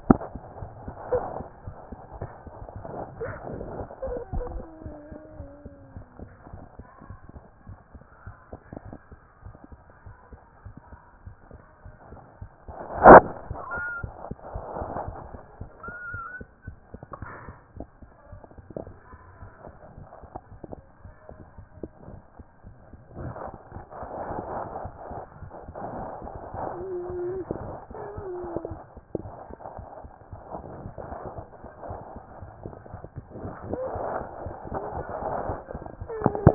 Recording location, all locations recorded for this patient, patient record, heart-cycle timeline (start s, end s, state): mitral valve (MV)
aortic valve (AV)+pulmonary valve (PV)+tricuspid valve (TV)+mitral valve (MV)
#Age: Child
#Sex: Female
#Height: 118.0 cm
#Weight: 25.4 kg
#Pregnancy status: False
#Murmur: Absent
#Murmur locations: nan
#Most audible location: nan
#Systolic murmur timing: nan
#Systolic murmur shape: nan
#Systolic murmur grading: nan
#Systolic murmur pitch: nan
#Systolic murmur quality: nan
#Diastolic murmur timing: nan
#Diastolic murmur shape: nan
#Diastolic murmur grading: nan
#Diastolic murmur pitch: nan
#Diastolic murmur quality: nan
#Outcome: Normal
#Campaign: 2014 screening campaign
0.00	4.88	unannotated
4.88	4.96	S1
4.96	5.10	systole
5.10	5.18	S2
5.18	5.38	diastole
5.38	5.48	S1
5.48	5.64	systole
5.64	5.72	S2
5.72	5.94	diastole
5.94	6.06	S1
6.06	6.20	systole
6.20	6.30	S2
6.30	6.52	diastole
6.52	6.62	S1
6.62	6.78	systole
6.78	6.86	S2
6.86	7.08	diastole
7.08	7.18	S1
7.18	7.34	systole
7.34	7.44	S2
7.44	7.68	diastole
7.68	7.78	S1
7.78	7.94	systole
7.94	8.02	S2
8.02	8.26	diastole
8.26	8.36	S1
8.36	8.52	systole
8.52	8.60	S2
8.60	8.84	diastole
8.84	8.96	S1
8.96	9.12	systole
9.12	9.20	S2
9.20	9.44	diastole
9.44	9.54	S1
9.54	9.72	systole
9.72	9.80	S2
9.80	10.06	diastole
10.06	10.14	S1
10.14	10.32	systole
10.32	10.40	S2
10.40	10.64	diastole
10.64	10.74	S1
10.74	10.90	systole
10.90	11.00	S2
11.00	11.24	diastole
11.24	11.34	S1
11.34	11.52	systole
11.52	11.62	S2
11.62	11.86	diastole
11.86	11.94	S1
11.94	12.10	systole
12.10	12.20	S2
12.20	12.42	diastole
12.42	12.50	S1
12.50	12.68	systole
12.68	12.74	S2
12.74	12.85	diastole
12.85	36.54	unannotated